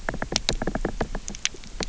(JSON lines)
{"label": "biophony, knock", "recorder": "SoundTrap 300"}